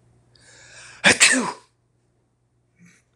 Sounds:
Sneeze